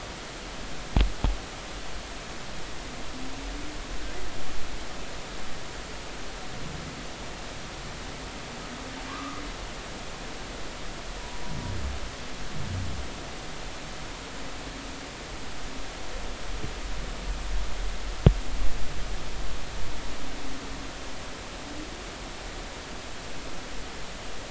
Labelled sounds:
9.1	9.4	humpback whale, 1.0 to 1.3 kHz

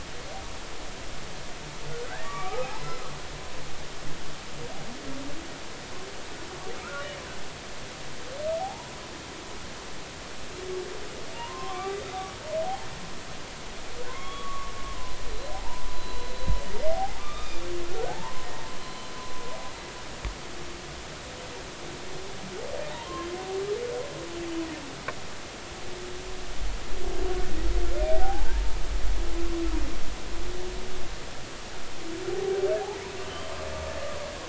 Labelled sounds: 2.1	3.0	humpback whale, 0.80 to 4.1 kHz
8.6	9.0	humpback whale, 0.80 to 1.0 kHz
11.3	12.0	humpback whale, 0.86 to 1.2 kHz
14.1	15.2	humpback whale, 0.90 to 3.4 kHz
15.5	16.3	humpback whale, 0.80 to 4.0 kHz
16.9	18.5	humpback whale, 0.80 to 2.5 kHz
18.8	19.1	humpback whale, 4.0 to 4.2 kHz
22.9	23.3	humpback whale, 0.86 to 1.1 kHz
27.3	28.6	humpback whale, 0.80 to 1.5 kHz
32.3	33.5	humpback whale, 0.80 to 3.3 kHz

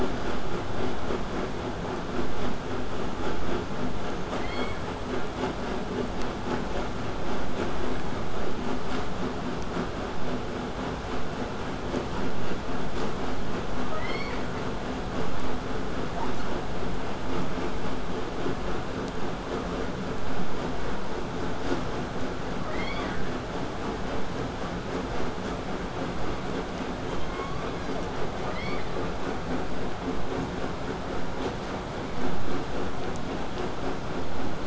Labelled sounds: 27.0	28.0	killer whale, southern resident, J pod, call S01, 0.80 to 5.6 kHz

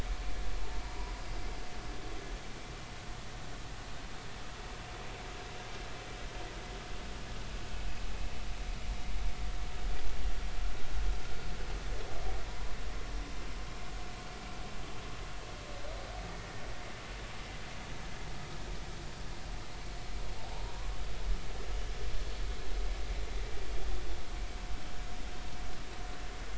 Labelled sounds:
0.8	1.1	humpback whale, 0.90 to 1.0 kHz
12.5	12.7	humpback whale, 0.90 to 1.1 kHz
20.5	20.7	humpback whale, 0.80 to 1.0 kHz

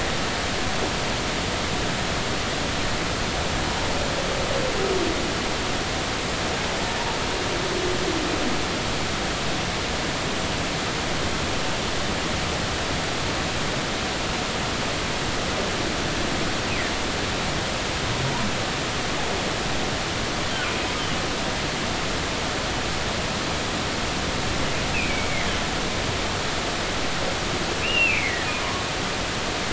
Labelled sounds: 24.9	25.3	humpback whale, 2.2 to 2.7 kHz
27.8	28.5	humpback whale, 1.7 to 2.9 kHz

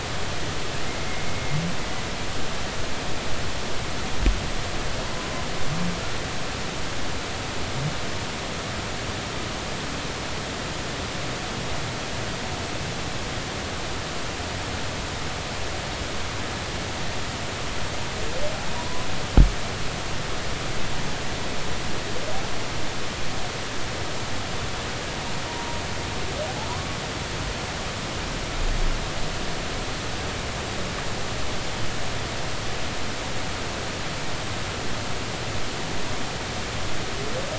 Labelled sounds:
18.7	19.1	humpback whale, 0.86 to 1.1 kHz

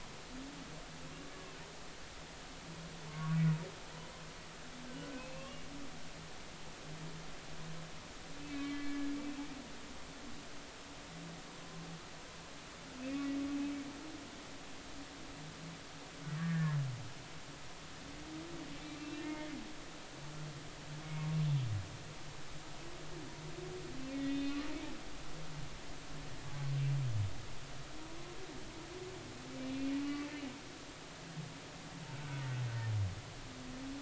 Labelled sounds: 3.1	3.4	humpback whale, 1.1 to 1.2 kHz
5.1	5.5	humpback whale, 2.5 to 2.7 kHz
8.5	9.1	humpback whale, 1.1 to 3.2 kHz
13.1	13.4	humpback whale, 2.1 to 2.3 kHz
14.0	14.3	humpback whale, 2.3 to 2.6 kHz
16.4	16.8	humpback whale, 1.6 to 1.9 kHz
19.0	19.5	humpback whale, 2.0 to 4.0 kHz
21.0	21.3	humpback whale, 2.1 to 2.2 kHz
24.1	24.6	humpback whale, 1.8 to 3.7 kHz
29.7	29.9	humpback whale, 2.3 to 2.5 kHz
32.2	32.5	humpback whale, 1.4 to 1.6 kHz

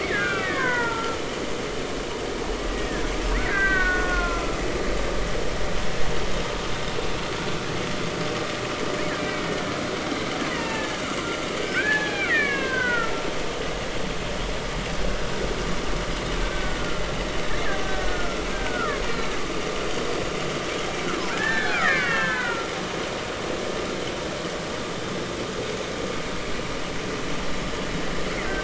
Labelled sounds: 0.0	1.2	killer whale, Bigg's (transient), 0.86 to 2.5 kHz
2.7	4.6	killer whale, Bigg's (transient), 0.99 to 2.4 kHz
9.1	9.8	killer whale, Bigg's (transient), 1.5 to 2.4 kHz
10.5	11.0	killer whale, Bigg's (transient), 0.83 to 3.0 kHz
11.6	13.1	killer whale, Bigg's (transient), 0.80 to 3.5 kHz
16.5	16.8	killer whale, Bigg's (transient), 1.4 to 1.6 kHz
17.8	19.3	killer whale, Bigg's (transient), 1.1 to 4.3 kHz
21.3	22.7	killer whale, Bigg's (transient), 0.90 to 3.6 kHz

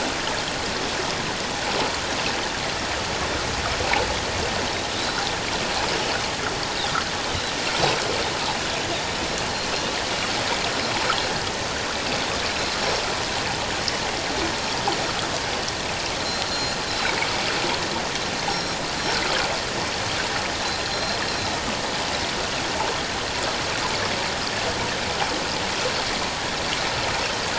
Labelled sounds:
5.0	5.2	Pacific white-sided dolphin, 3.9 to 4.1 kHz
9.5	9.7	Pacific white-sided dolphin, 4.1 to 4.5 kHz
16.2	17.2	Pacific white-sided dolphin, 3.6 to 7.0 kHz
18.5	18.8	Pacific white-sided dolphin, 4.1 to 5.6 kHz
20.9	21.6	Pacific white-sided dolphin, 3.8 to 5.6 kHz

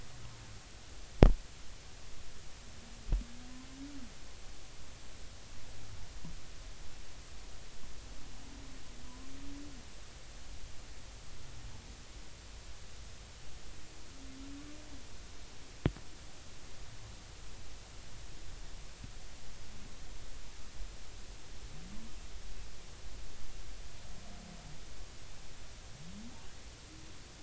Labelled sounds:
9.0	9.3	humpback whale, 0.93 to 1.2 kHz

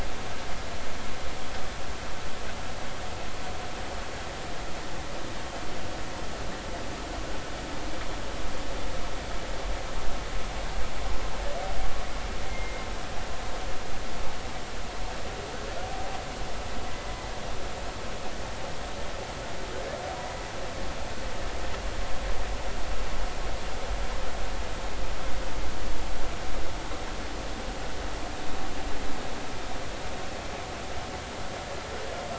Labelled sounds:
12.5	12.8	humpback whale, 2.0 to 2.2 kHz

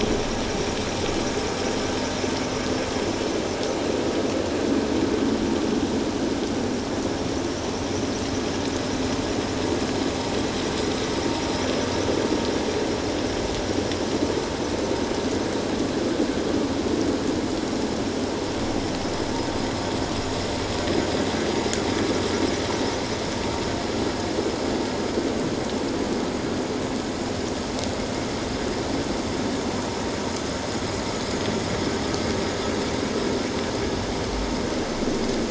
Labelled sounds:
19.0	19.3	vessel noise, 5.1 to 5.3 kHz

